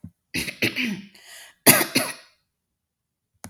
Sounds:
Throat clearing